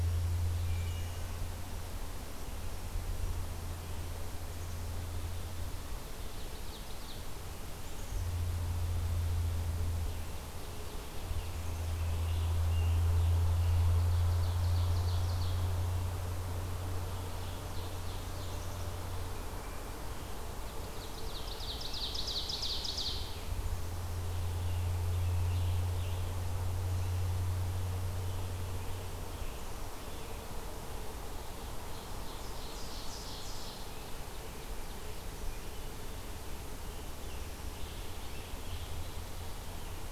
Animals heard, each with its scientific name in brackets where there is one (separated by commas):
Ovenbird (Seiurus aurocapilla), Black-capped Chickadee (Poecile atricapillus), Scarlet Tanager (Piranga olivacea), Wood Thrush (Hylocichla mustelina)